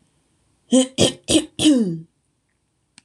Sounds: Throat clearing